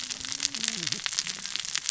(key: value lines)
label: biophony, cascading saw
recorder: SoundTrap 600 or HydroMoth